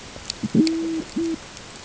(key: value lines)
label: ambient
recorder: HydroMoth